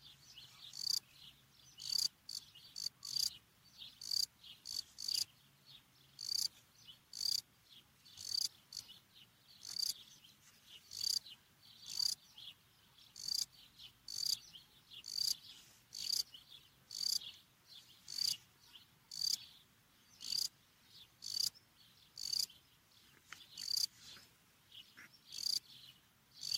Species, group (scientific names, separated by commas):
Melanogryllus desertus, Orthoptera